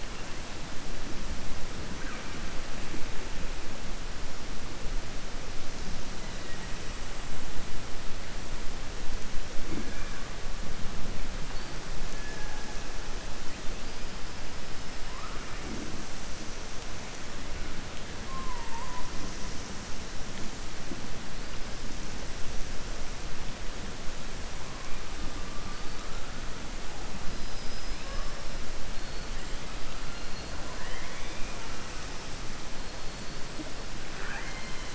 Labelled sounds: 27.3	28.3	killer whale, southern resident, 4.1 to 5.5 kHz
30.5	31.7	killer whale, southern resident, 0.62 to 3.6 kHz
34.0	34.9	killer whale, southern resident, 0.78 to 4.2 kHz

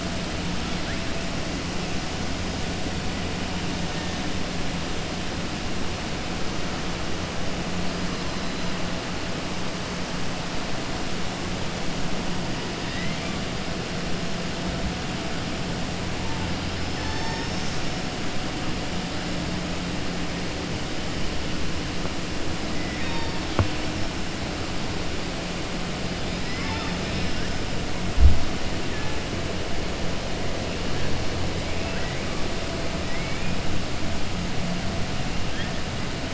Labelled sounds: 12.8	13.3	killer whale, southern resident, 0.98 to 4.0 kHz
22.8	23.4	killer whale, southern resident, 0.90 to 5.4 kHz
26.2	27.5	killer whale, southern resident, 0.89 to 5.8 kHz
31.7	32.2	killer whale, southern resident, 1.4 to 2.7 kHz
33.0	33.5	killer whale, southern resident, 1.9 to 2.7 kHz

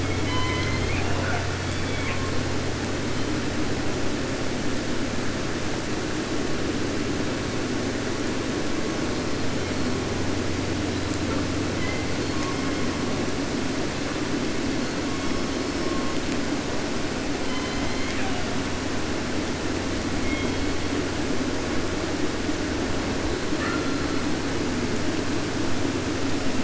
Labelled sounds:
0.0	2.5	killer whale, southern resident, J pod, call S01 and call S44, 0.32 to 6.8 kHz
3.0	3.6	killer whale, 2.1 to 4.5 kHz
8.9	10.3	killer whale, 0.60 to 6.5 kHz
10.9	11.5	killer whale, southern resident, 0.67 to 5.7 kHz
11.8	13.3	killer whale, 0.76 to 5.9 kHz
14.8	16.3	killer whale, 0.89 to 6.6 kHz
17.4	18.6	killer whale, southern resident, J pod, call S01, 0.50 to 8.0 kHz
20.2	21.1	killer whale, 0.74 to 4.9 kHz
23.4	24.5	killer whale, 1.0 to 4.6 kHz

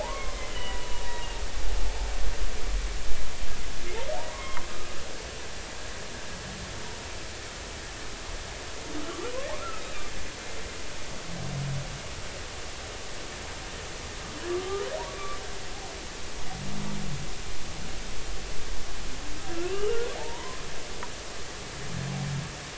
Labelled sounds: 0.0	1.0	humpback whale, 0.80 to 3.1 kHz
4.3	4.6	humpback whale, 0.93 to 2.2 kHz
15.1	15.4	humpback whale, 1.1 to 1.2 kHz
19.6	20.6	humpback whale, 0.80 to 3.1 kHz

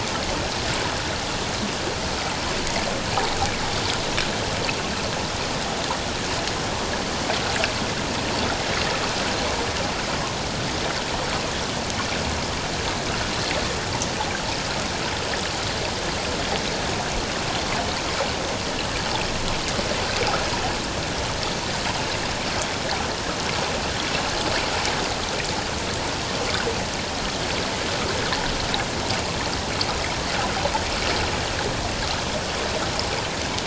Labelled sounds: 3.1	3.4	water noise, 0.78 to 0.94 kHz

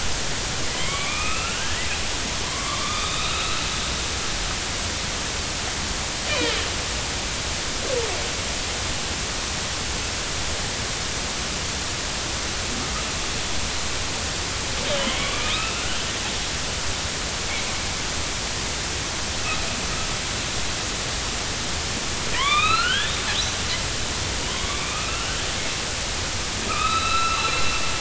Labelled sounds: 0.7	1.9	killer whale, northern resident, A clan, AB subclan, 0.96 to 3.4 kHz
2.4	3.6	killer whale, northern resident, A clan, AB subclan, 0.96 to 4.1 kHz
6.3	6.6	killer whale, northern resident, A clan, AB subclan, 2.1 to 2.5 kHz
14.9	15.9	killer whale, northern resident, A clan, AB subclan, 1.1 to 3.4 kHz
22.3	23.2	killer whale, northern resident, A clan, AB subclan, 0.93 to 4.3 kHz
24.5	25.3	killer whale, northern resident, A clan, AB subclan, 2.2 to 3.5 kHz
26.7	27.6	killer whale, northern resident, A clan, AB subclan, 1.2 to 4.1 kHz

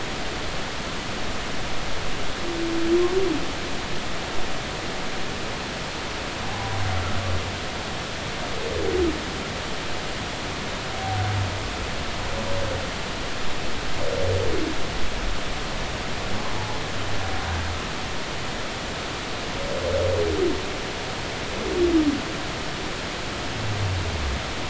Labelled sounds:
6.4	6.7	humpback whale, 0.80 to 0.86 kHz

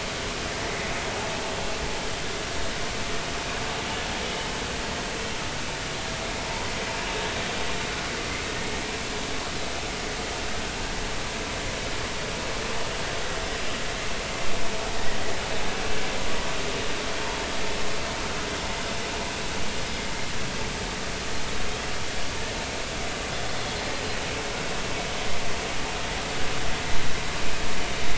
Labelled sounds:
13.5	13.8	vessel noise, 4.9 to 5.1 kHz

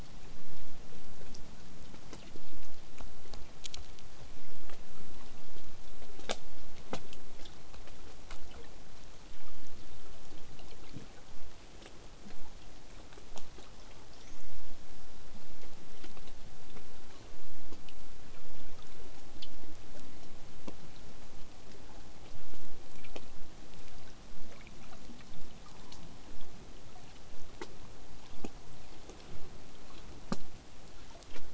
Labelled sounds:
14.1	14.4	killer whale, southern resident, whistle, 4.1 to 7.8 kHz

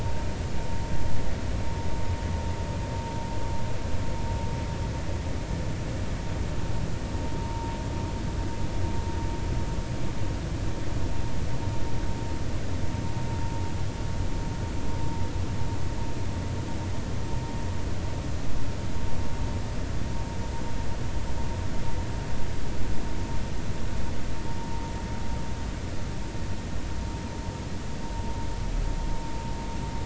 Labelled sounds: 7.4	7.7	vessel noise, 0.86 to 1.1 kHz

